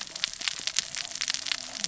{"label": "biophony, cascading saw", "recorder": "SoundTrap 600 or HydroMoth"}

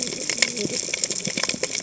{"label": "biophony, cascading saw", "recorder": "HydroMoth"}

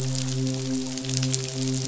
{"label": "biophony, midshipman", "recorder": "SoundTrap 500"}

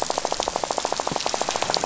{"label": "biophony, rattle", "recorder": "SoundTrap 500"}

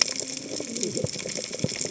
{"label": "biophony, cascading saw", "recorder": "HydroMoth"}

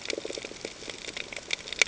{"label": "ambient", "recorder": "HydroMoth"}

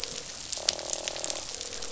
{"label": "biophony, croak", "recorder": "SoundTrap 500"}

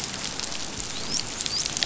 {"label": "biophony, dolphin", "recorder": "SoundTrap 500"}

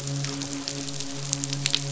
{"label": "biophony, midshipman", "recorder": "SoundTrap 500"}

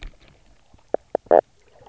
{"label": "biophony, knock croak", "recorder": "SoundTrap 300"}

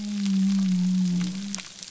{"label": "biophony", "recorder": "SoundTrap 300"}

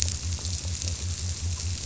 {"label": "biophony", "recorder": "SoundTrap 300"}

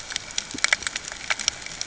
{"label": "ambient", "recorder": "HydroMoth"}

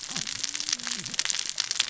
{"label": "biophony, cascading saw", "recorder": "SoundTrap 600 or HydroMoth"}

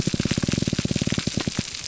{"label": "biophony, pulse", "recorder": "SoundTrap 300"}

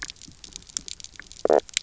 {"label": "biophony, knock croak", "recorder": "SoundTrap 300"}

